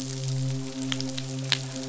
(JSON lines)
{"label": "biophony, midshipman", "recorder": "SoundTrap 500"}